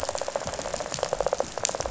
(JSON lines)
{"label": "biophony, rattle", "recorder": "SoundTrap 500"}